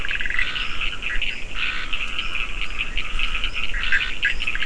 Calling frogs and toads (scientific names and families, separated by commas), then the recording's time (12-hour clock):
Boana bischoffi (Hylidae), Dendropsophus nahdereri (Hylidae), Boana leptolineata (Hylidae), Scinax perereca (Hylidae), Sphaenorhynchus surdus (Hylidae)
5:00am